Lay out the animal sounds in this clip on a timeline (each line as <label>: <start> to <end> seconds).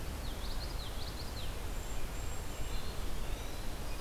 Common Yellowthroat (Geothlypis trichas): 0.0 to 1.6 seconds
Cedar Waxwing (Bombycilla cedrorum): 1.5 to 2.9 seconds
Eastern Wood-Pewee (Contopus virens): 2.6 to 3.7 seconds